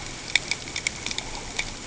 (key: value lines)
label: ambient
recorder: HydroMoth